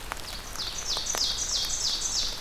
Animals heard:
Red-eyed Vireo (Vireo olivaceus), Ovenbird (Seiurus aurocapilla)

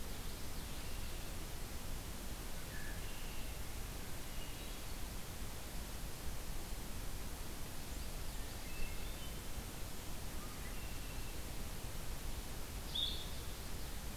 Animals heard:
Blue-headed Vireo (Vireo solitarius), Common Yellowthroat (Geothlypis trichas), Hermit Thrush (Catharus guttatus), Red-winged Blackbird (Agelaius phoeniceus)

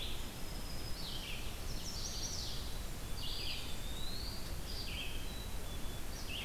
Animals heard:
Black-capped Chickadee (Poecile atricapillus), Red-eyed Vireo (Vireo olivaceus), Eastern Wood-Pewee (Contopus virens), Black-throated Green Warbler (Setophaga virens), Chestnut-sided Warbler (Setophaga pensylvanica)

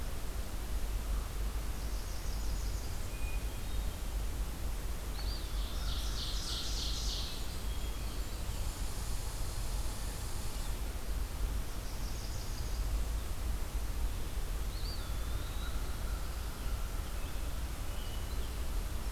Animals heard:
Common Raven (Corvus corax), Ovenbird (Seiurus aurocapilla), Hermit Thrush (Catharus guttatus), Eastern Wood-Pewee (Contopus virens), Blackburnian Warbler (Setophaga fusca), Red Squirrel (Tamiasciurus hudsonicus), Northern Parula (Setophaga americana)

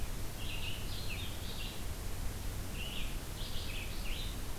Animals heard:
Red-eyed Vireo (Vireo olivaceus)

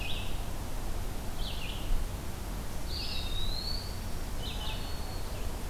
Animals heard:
Eastern Wood-Pewee (Contopus virens), Red-eyed Vireo (Vireo olivaceus), Black-throated Green Warbler (Setophaga virens)

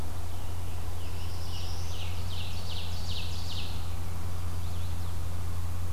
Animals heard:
Ovenbird (Seiurus aurocapilla), Scarlet Tanager (Piranga olivacea), Chestnut-sided Warbler (Setophaga pensylvanica), Black-throated Blue Warbler (Setophaga caerulescens)

